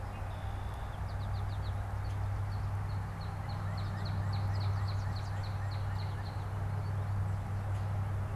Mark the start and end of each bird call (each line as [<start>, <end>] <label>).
[0.00, 1.10] Red-winged Blackbird (Agelaius phoeniceus)
[1.00, 1.80] American Goldfinch (Spinus tristis)
[1.90, 6.70] Northern Cardinal (Cardinalis cardinalis)